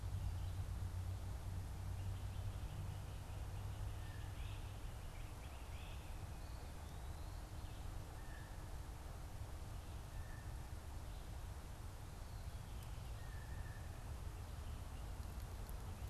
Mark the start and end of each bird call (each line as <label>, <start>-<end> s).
Blue Jay (Cyanocitta cristata), 3.7-4.3 s
Great Crested Flycatcher (Myiarchus crinitus), 4.3-6.1 s
Blue Jay (Cyanocitta cristata), 8.0-10.6 s
Blue Jay (Cyanocitta cristata), 13.0-13.9 s